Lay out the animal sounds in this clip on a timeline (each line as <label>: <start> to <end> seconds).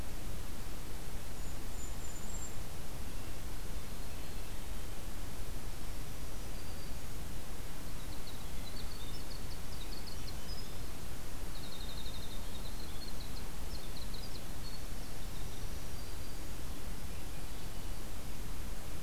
Golden-crowned Kinglet (Regulus satrapa): 1.1 to 2.6 seconds
Black-throated Green Warbler (Setophaga virens): 5.8 to 7.3 seconds
Winter Wren (Troglodytes hiemalis): 7.7 to 11.0 seconds
Winter Wren (Troglodytes hiemalis): 11.5 to 16.1 seconds
Black-throated Green Warbler (Setophaga virens): 15.5 to 16.7 seconds
Swainson's Thrush (Catharus ustulatus): 17.1 to 18.3 seconds